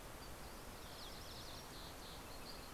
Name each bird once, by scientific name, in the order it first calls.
Passerella iliaca